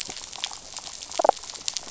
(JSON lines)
{"label": "biophony, damselfish", "recorder": "SoundTrap 500"}
{"label": "biophony", "recorder": "SoundTrap 500"}